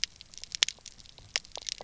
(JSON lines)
{"label": "biophony, knock croak", "recorder": "SoundTrap 300"}